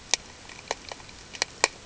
{"label": "ambient", "recorder": "HydroMoth"}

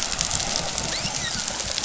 {"label": "biophony, dolphin", "recorder": "SoundTrap 500"}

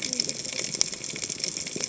{"label": "biophony, cascading saw", "recorder": "HydroMoth"}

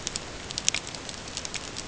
{"label": "ambient", "recorder": "HydroMoth"}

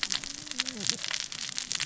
{"label": "biophony, cascading saw", "recorder": "SoundTrap 600 or HydroMoth"}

